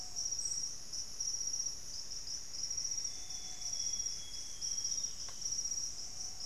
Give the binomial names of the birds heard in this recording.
Myrmelastes hyperythrus, Cyanoloxia rothschildii